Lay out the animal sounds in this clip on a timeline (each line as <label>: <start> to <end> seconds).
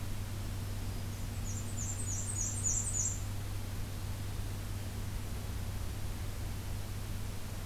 Black-and-white Warbler (Mniotilta varia): 1.1 to 3.2 seconds